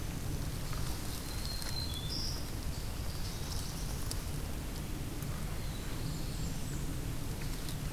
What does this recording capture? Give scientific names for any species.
Setophaga virens, Setophaga caerulescens, Setophaga fusca